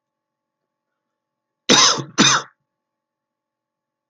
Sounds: Cough